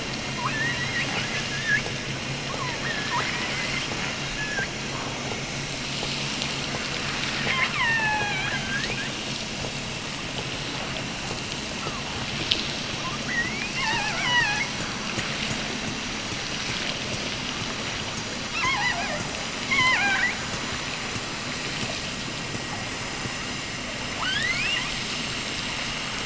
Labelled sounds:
0.3	1.0	killer whale, offshore, 0.75 to 2.9 kHz
2.8	3.5	killer whale, offshore, 0.73 to 3.2 kHz
4.0	4.8	killer whale, offshore, 1.2 to 3.0 kHz
7.4	9.2	killer whale, offshore, 0.66 to 4.8 kHz
13.2	14.8	killer whale, offshore, 0.57 to 6.2 kHz
18.5	20.5	killer whale, offshore, 0.52 to 5.7 kHz
24.1	25.0	killer whale, offshore, 0.48 to 8.0 kHz

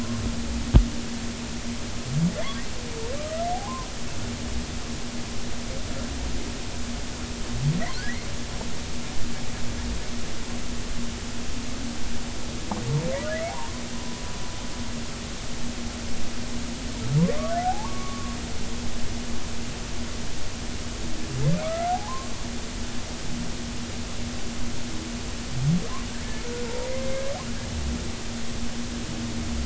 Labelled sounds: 3.5	3.9	humpback whale, 0.80 to 1.2 kHz
13.9	14.2	humpback whale, 0.96 to 1.0 kHz
17.6	18.3	humpback whale, 0.80 to 1.2 kHz
21.6	22.3	humpback whale, 0.80 to 1.5 kHz

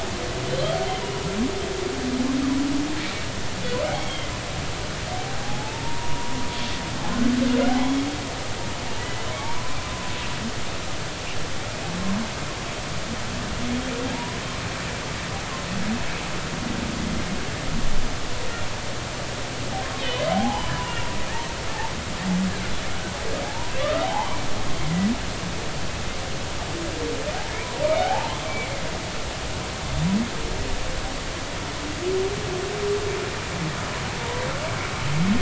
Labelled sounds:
1.0	1.3	humpback whale, 2.8 to 2.9 kHz
3.8	4.3	humpback whale, 2.0 to 3.4 kHz
5.4	6.4	humpback whale, 0.80 to 1.1 kHz
7.7	7.9	humpback whale, 0.80 to 0.90 kHz
9.0	9.3	humpback whale, 1.9 to 2.0 kHz
14.1	14.4	humpback whale, 0.86 to 1.1 kHz
20.3	21.1	humpback whale, 0.80 to 2.9 kHz
22.9	24.3	humpback whale, 0.80 to 1.6 kHz
27.6	28.3	humpback whale, 0.80 to 1.1 kHz

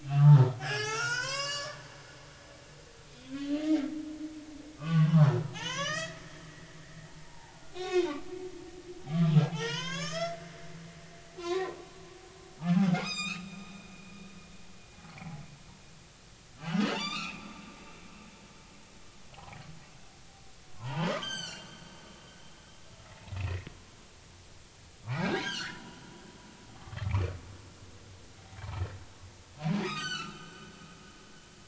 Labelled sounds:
0.0	2.0	humpback whale, 0.80 to 8.0 kHz
3.0	3.7	humpback whale, 2.4 to 4.3 kHz
4.8	8.2	humpback whale, 0.80 to 6.8 kHz
9.5	11.8	humpback whale, 0.80 to 7.1 kHz
12.9	13.6	humpback whale, 1.1 to 7.6 kHz
15.1	15.4	humpback whale, 0.80 to 2.4 kHz
16.6	17.5	humpback whale, 1.1 to 4.9 kHz
19.3	19.6	humpback whale, 0.80 to 0.86 kHz
20.8	21.7	humpback whale, 0.80 to 7.9 kHz
23.4	23.6	humpback whale, 2.4 to 2.8 kHz
25.1	25.8	humpback whale, 1.2 to 6.6 kHz
26.7	27.3	humpback whale, 1.1 to 2.7 kHz
29.8	30.7	humpback whale, 1.1 to 7.8 kHz

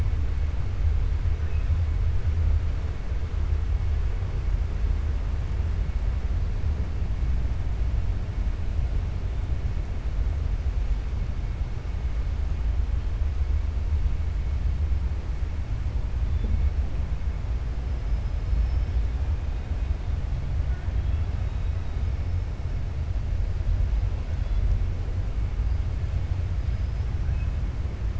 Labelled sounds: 18.0	19.0	killer whale, 4.2 to 5.3 kHz

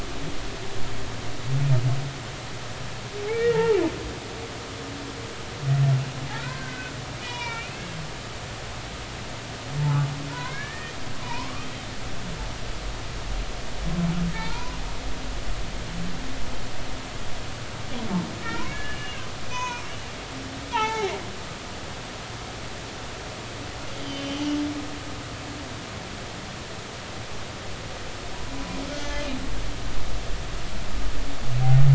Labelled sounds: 3.3	3.8	humpback whale, 0.83 to 2.4 kHz
6.3	8.0	humpback whale, 0.86 to 4.0 kHz
9.8	10.9	humpback whale, 0.83 to 2.4 kHz
11.2	11.7	humpback whale, 0.86 to 1.3 kHz
15.3	15.8	humpback whale, 0.83 to 1.1 kHz
18.4	19.8	humpback whale, 0.90 to 6.6 kHz
20.7	21.1	humpback whale, 0.80 to 4.0 kHz
24.0	24.4	humpback whale, 2.9 to 4.8 kHz

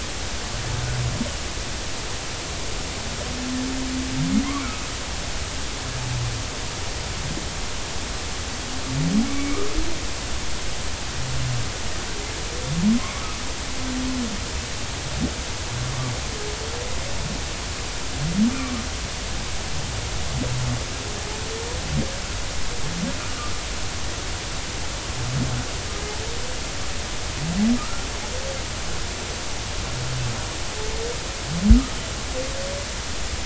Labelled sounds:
9.3	9.6	humpback whale, 2.1 to 2.4 kHz
18.5	18.8	humpback whale, 1.1 to 2.5 kHz
23.2	23.5	humpback whale, 1.1 to 1.4 kHz
27.8	28.1	humpback whale, 1.2 to 1.5 kHz

